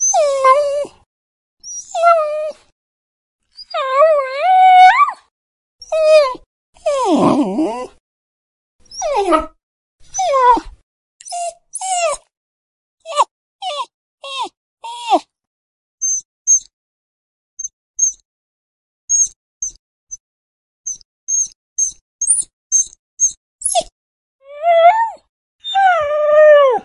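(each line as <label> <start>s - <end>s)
A dog is whining loudly and actively. 0.0s - 15.6s
A dog whines listlessly. 13.2s - 26.8s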